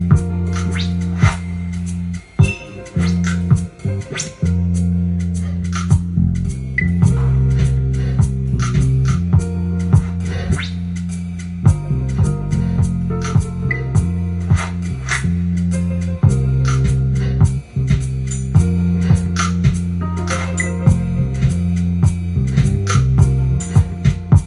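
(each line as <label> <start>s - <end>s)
Rhythmic background noise with repeating thumps and scratching sounds. 0.0s - 24.4s
A bell rings with a metallic sound. 2.4s - 3.0s
A dull ringing sound. 6.7s - 7.4s
A dull ringing sound. 13.5s - 14.2s
A dull ringing sound. 20.5s - 21.2s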